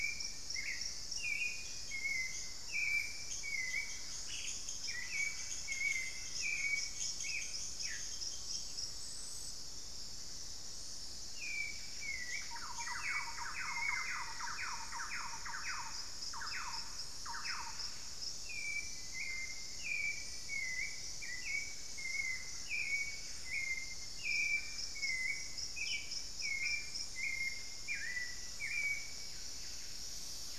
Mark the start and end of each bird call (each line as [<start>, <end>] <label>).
[0.00, 1.17] Elegant Woodcreeper (Xiphorhynchus elegans)
[0.00, 30.59] Hauxwell's Thrush (Turdus hauxwelli)
[2.37, 8.47] Thrush-like Wren (Campylorhynchus turdinus)
[3.97, 7.67] Buff-breasted Wren (Cantorchilus leucotis)
[4.07, 4.67] Ash-throated Gnateater (Conopophaga peruviana)
[7.47, 8.07] unidentified bird
[11.07, 12.37] Buff-breasted Wren (Cantorchilus leucotis)
[12.17, 18.07] Thrush-like Wren (Campylorhynchus turdinus)
[18.57, 20.97] Black-faced Antthrush (Formicarius analis)
[27.67, 30.59] Buff-breasted Wren (Cantorchilus leucotis)